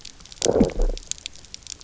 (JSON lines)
{"label": "biophony, low growl", "recorder": "SoundTrap 300"}